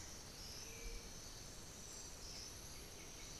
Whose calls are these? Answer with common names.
Black-billed Thrush, White-winged Becard